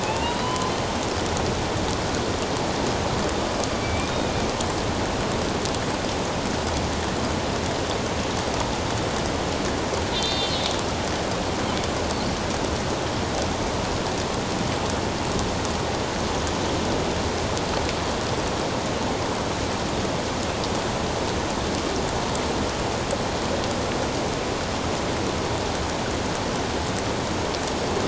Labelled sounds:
0.0	0.7	killer whale, northern resident, A clan, AB subclan, 0.81 to 3.1 kHz
3.8	4.3	killer whale, northern resident, A clan, AB subclan, 2.2 to 3.8 kHz
10.1	10.7	killer whale, northern resident, A clan, AB subclan, 2.9 to 4.9 kHz

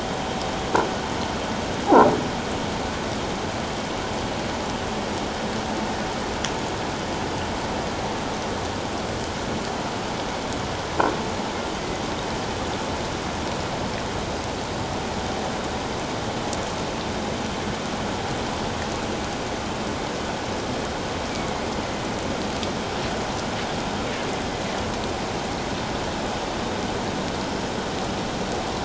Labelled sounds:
21.3	21.6	killer whale, northern resident, A clan, AA subclan, A04 pod, call N04, 2.1 to 2.4 kHz

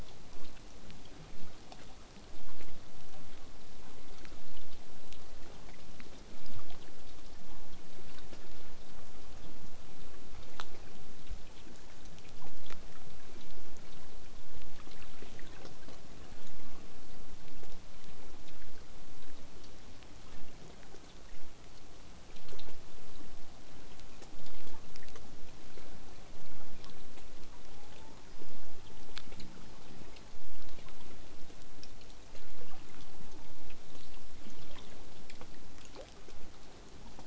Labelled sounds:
33.9	34.4	killer whale, southern resident, 2.7 to 8.0 kHz

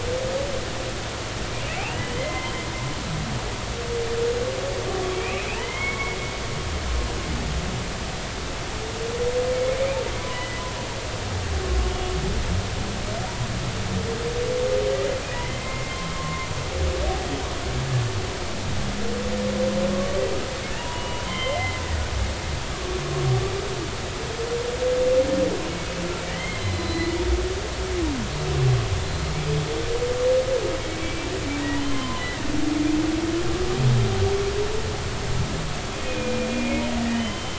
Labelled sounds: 1.7	2.5	humpback whale, 2.0 to 3.0 kHz
3.3	3.5	humpback whale, 0.90 to 1.1 kHz
5.1	6.2	humpback whale, 0.96 to 3.3 kHz
10.2	10.6	humpback whale, 0.93 to 2.0 kHz
15.4	16.5	humpback whale, 0.99 to 2.2 kHz
20.8	21.8	humpback whale, 0.86 to 3.2 kHz
26.2	27.2	humpback whale, 1.8 to 4.4 kHz
31.0	32.4	humpback whale, 0.93 to 3.2 kHz
36.0	37.5	humpback whale, 2.4 to 3.2 kHz

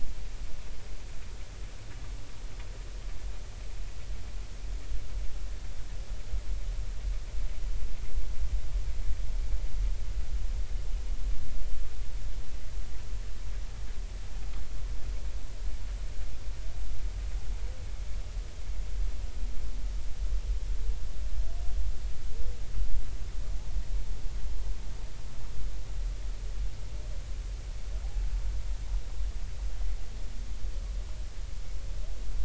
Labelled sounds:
28.0	28.3	humpback whale, 0.80 to 0.90 kHz

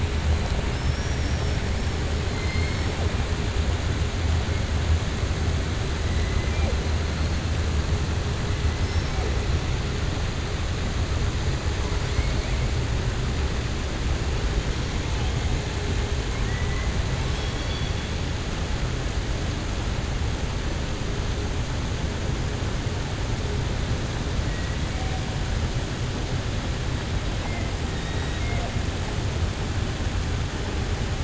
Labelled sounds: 0.6	1.6	killer whale, southern resident, 4.7 to 5.9 kHz
2.3	2.8	killer whale, southern resident, 1.4 to 3.1 kHz
16.3	16.9	killer whale, southern resident, 1.0 to 2.4 kHz

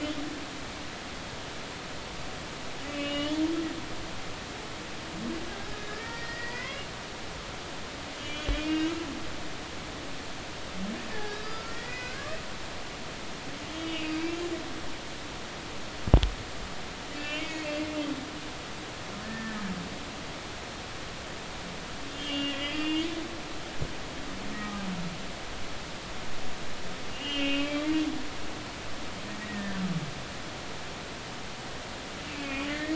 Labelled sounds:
2.9	3.3	humpback whale, 2.8 to 3.1 kHz
5.8	6.9	humpback whale, 1.6 to 2.9 kHz
8.1	8.9	humpback whale, 2.2 to 4.8 kHz
11.1	12.4	humpback whale, 1.2 to 5.0 kHz
13.7	14.4	humpback whale, 2.1 to 3.3 kHz
17.2	17.7	humpback whale, 2.1 to 2.8 kHz
19.2	19.6	humpback whale, 1.7 to 1.9 kHz
22.1	23.1	humpback whale, 1.9 to 5.1 kHz
24.5	24.9	humpback whale, 1.2 to 1.3 kHz
27.1	27.8	humpback whale, 2.2 to 3.3 kHz
29.4	29.8	humpback whale, 1.7 to 2.0 kHz
32.3	32.9	humpback whale, 1.7 to 2.8 kHz

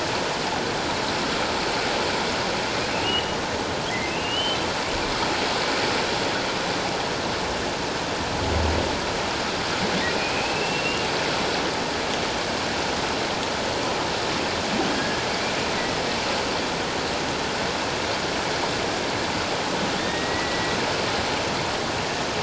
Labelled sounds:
3.0	4.6	humpback whale, 1.8 to 3.2 kHz
10.1	11.1	humpback whale, 2.3 to 2.9 kHz
14.9	15.2	humpback whale, 1.6 to 1.7 kHz
20.0	20.8	humpback whale, 1.8 to 3.9 kHz

